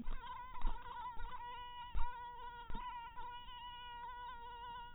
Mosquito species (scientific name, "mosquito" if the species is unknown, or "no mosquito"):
mosquito